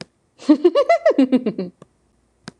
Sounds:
Laughter